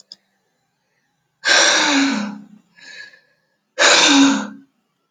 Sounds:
Sigh